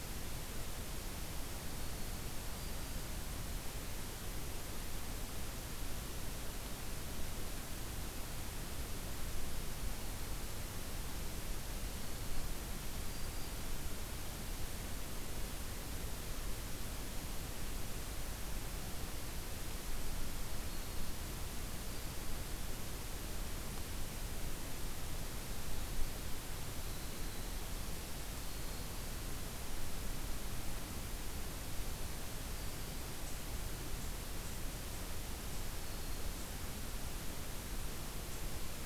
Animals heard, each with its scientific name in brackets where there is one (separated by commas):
Winter Wren (Troglodytes hiemalis), Black-throated Green Warbler (Setophaga virens)